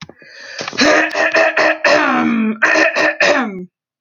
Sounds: Throat clearing